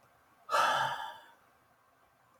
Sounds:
Sigh